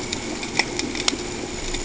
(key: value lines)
label: ambient
recorder: HydroMoth